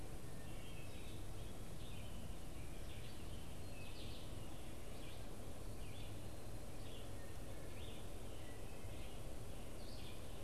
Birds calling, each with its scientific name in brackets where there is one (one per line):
Wood Thrush (Hylocichla mustelina)
Red-eyed Vireo (Vireo olivaceus)